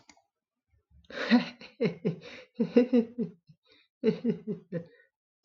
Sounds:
Laughter